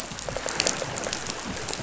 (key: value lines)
label: biophony
recorder: SoundTrap 500